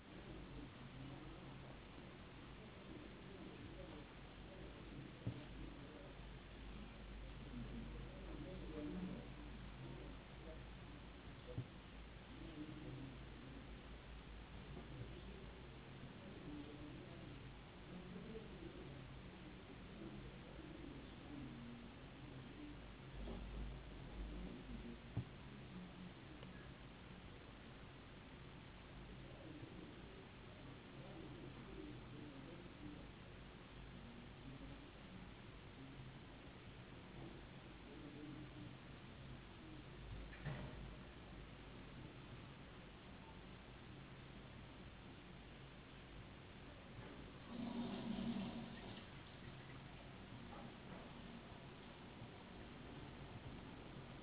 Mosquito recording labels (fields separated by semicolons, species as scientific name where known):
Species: no mosquito; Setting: insect culture